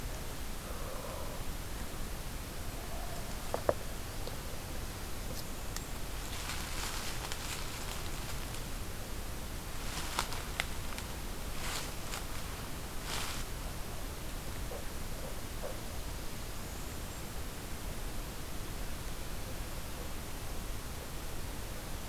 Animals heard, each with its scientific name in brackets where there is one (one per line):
Blackburnian Warbler (Setophaga fusca)